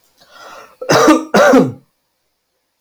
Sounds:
Cough